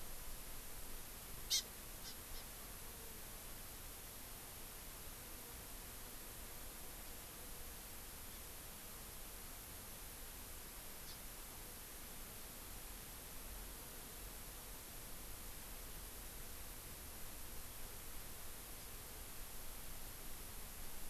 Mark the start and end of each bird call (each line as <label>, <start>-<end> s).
Hawaii Amakihi (Chlorodrepanis virens), 1.5-1.6 s
Hawaii Amakihi (Chlorodrepanis virens), 2.0-2.4 s
Hawaii Amakihi (Chlorodrepanis virens), 11.0-11.2 s